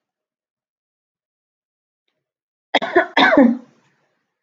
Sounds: Cough